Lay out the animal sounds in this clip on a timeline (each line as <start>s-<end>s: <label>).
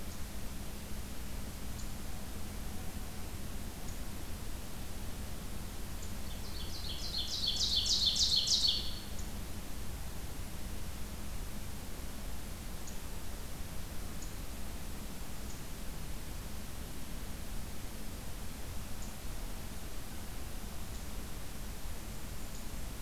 6.1s-9.1s: Ovenbird (Seiurus aurocapilla)
21.5s-23.0s: Golden-crowned Kinglet (Regulus satrapa)